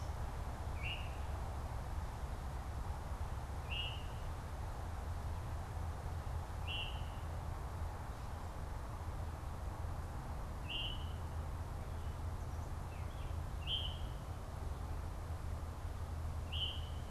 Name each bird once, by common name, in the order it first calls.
Veery